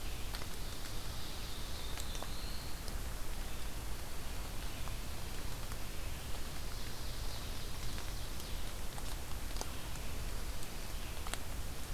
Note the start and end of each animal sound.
[0.00, 1.88] Ovenbird (Seiurus aurocapilla)
[1.59, 2.84] Black-throated Blue Warbler (Setophaga caerulescens)
[6.53, 8.68] Ovenbird (Seiurus aurocapilla)

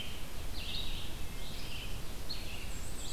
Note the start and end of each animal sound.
[0.00, 3.13] Red-eyed Vireo (Vireo olivaceus)
[2.48, 3.13] Black-and-white Warbler (Mniotilta varia)

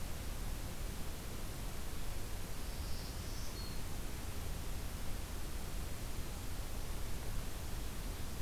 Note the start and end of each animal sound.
[2.53, 3.85] Black-throated Green Warbler (Setophaga virens)

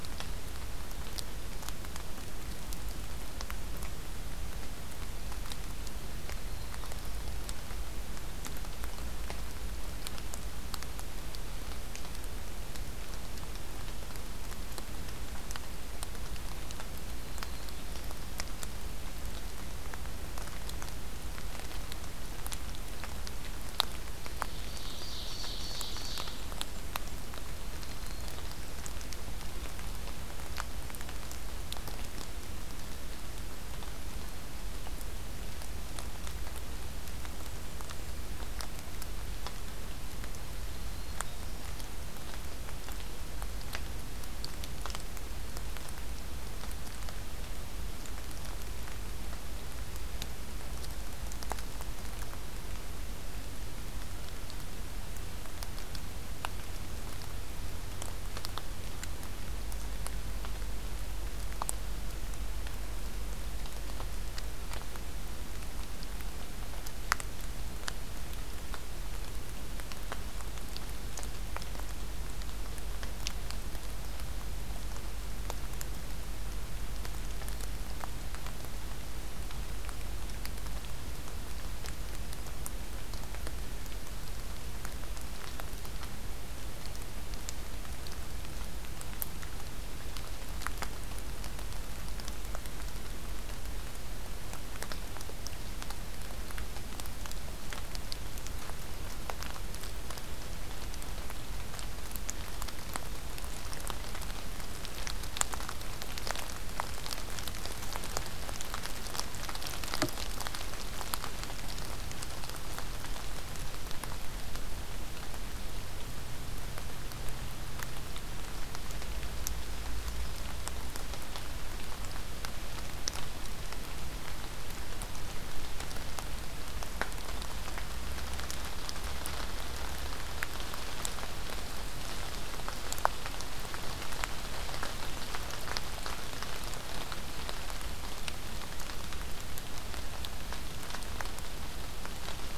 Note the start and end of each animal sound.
[6.26, 7.11] Black-throated Green Warbler (Setophaga virens)
[17.05, 18.15] Black-throated Green Warbler (Setophaga virens)
[24.39, 26.36] Ovenbird (Seiurus aurocapilla)
[27.72, 28.67] Black-throated Green Warbler (Setophaga virens)
[40.59, 41.58] Black-throated Green Warbler (Setophaga virens)

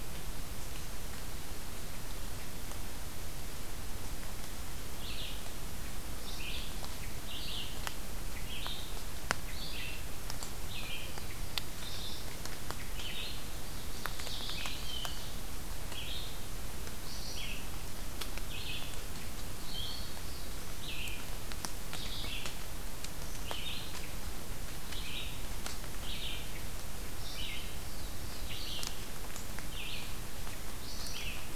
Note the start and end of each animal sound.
[4.97, 31.55] Red-eyed Vireo (Vireo olivaceus)
[13.56, 15.41] Ovenbird (Seiurus aurocapilla)
[27.67, 29.07] Black-throated Blue Warbler (Setophaga caerulescens)

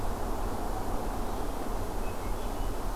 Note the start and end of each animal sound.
[1.87, 2.95] Hermit Thrush (Catharus guttatus)

